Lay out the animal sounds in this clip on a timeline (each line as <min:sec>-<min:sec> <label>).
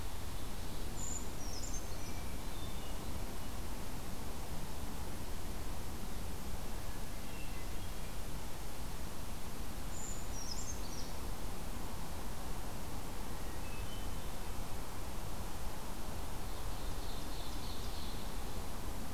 0:00.0-0:01.3 Ovenbird (Seiurus aurocapilla)
0:00.8-0:02.2 Brown Creeper (Certhia americana)
0:02.0-0:03.3 Hermit Thrush (Catharus guttatus)
0:06.8-0:08.3 Hermit Thrush (Catharus guttatus)
0:09.9-0:11.2 Brown Creeper (Certhia americana)
0:13.2-0:14.5 Hermit Thrush (Catharus guttatus)
0:16.4-0:18.3 Ovenbird (Seiurus aurocapilla)